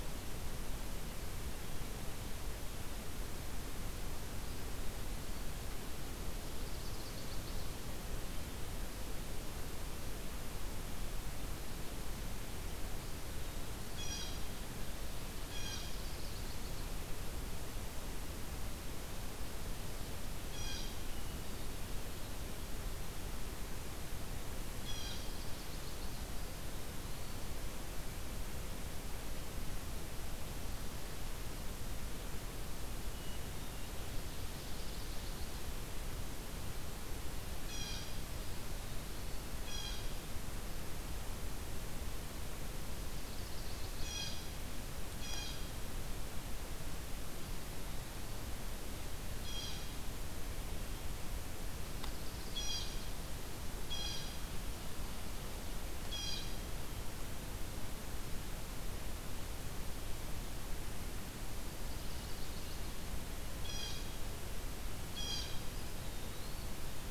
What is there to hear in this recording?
Eastern Wood-Pewee, Chestnut-sided Warbler, Blue Jay, Ovenbird, Hermit Thrush